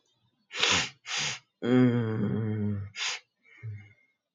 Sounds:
Sniff